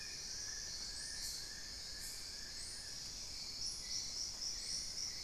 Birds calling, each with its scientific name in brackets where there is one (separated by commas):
Long-billed Woodcreeper (Nasica longirostris)